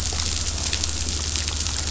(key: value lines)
label: anthrophony, boat engine
recorder: SoundTrap 500